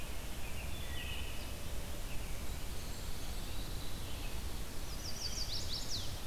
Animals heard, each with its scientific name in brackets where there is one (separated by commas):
Pine Warbler (Setophaga pinus), Chestnut-sided Warbler (Setophaga pensylvanica), Wood Thrush (Hylocichla mustelina), American Robin (Turdus migratorius), Red-eyed Vireo (Vireo olivaceus)